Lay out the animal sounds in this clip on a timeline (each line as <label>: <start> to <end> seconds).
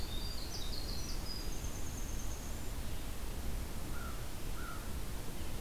Winter Wren (Troglodytes hiemalis): 0.0 to 2.7 seconds
American Crow (Corvus brachyrhynchos): 3.9 to 4.8 seconds